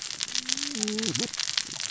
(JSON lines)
{"label": "biophony, cascading saw", "recorder": "SoundTrap 600 or HydroMoth"}